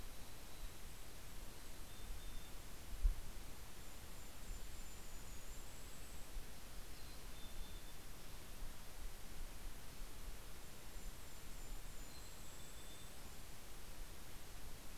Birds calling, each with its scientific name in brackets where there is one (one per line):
Mountain Chickadee (Poecile gambeli)
Golden-crowned Kinglet (Regulus satrapa)